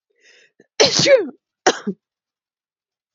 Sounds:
Sneeze